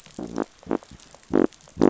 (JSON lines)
{"label": "biophony", "recorder": "SoundTrap 500"}